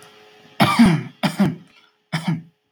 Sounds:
Throat clearing